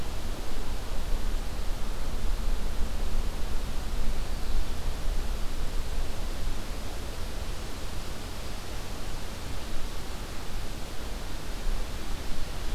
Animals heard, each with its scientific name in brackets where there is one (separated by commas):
Red-eyed Vireo (Vireo olivaceus)